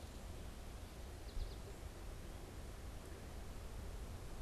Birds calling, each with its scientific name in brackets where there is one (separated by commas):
American Goldfinch (Spinus tristis), Gray Catbird (Dumetella carolinensis)